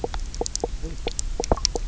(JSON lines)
{"label": "biophony, knock croak", "recorder": "SoundTrap 300"}